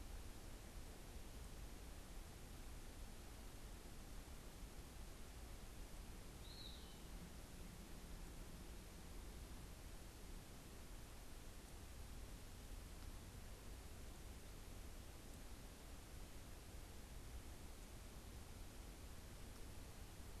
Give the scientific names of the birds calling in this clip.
Contopus virens